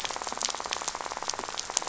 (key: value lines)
label: biophony, rattle
recorder: SoundTrap 500